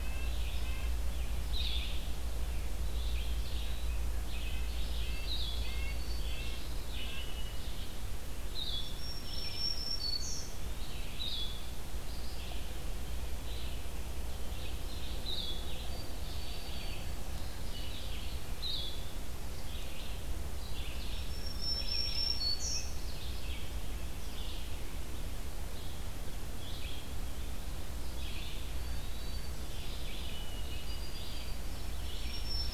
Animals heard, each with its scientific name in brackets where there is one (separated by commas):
Blue-headed Vireo (Vireo solitarius), Song Sparrow (Melospiza melodia), Red-eyed Vireo (Vireo olivaceus), Black-throated Green Warbler (Setophaga virens), Eastern Wood-Pewee (Contopus virens), Red-breasted Nuthatch (Sitta canadensis)